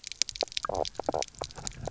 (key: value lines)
label: biophony, knock croak
recorder: SoundTrap 300